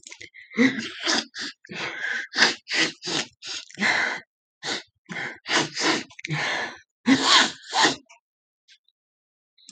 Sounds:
Sniff